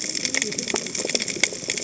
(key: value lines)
label: biophony, cascading saw
recorder: HydroMoth